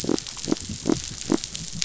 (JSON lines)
{"label": "biophony", "recorder": "SoundTrap 500"}